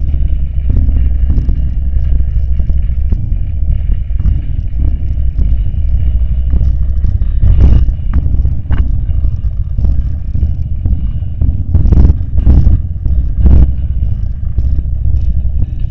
Is someone talking?
no